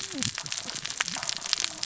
{"label": "biophony, cascading saw", "recorder": "SoundTrap 600 or HydroMoth"}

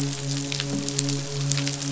{"label": "biophony, midshipman", "recorder": "SoundTrap 500"}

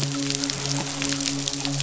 {"label": "biophony, midshipman", "recorder": "SoundTrap 500"}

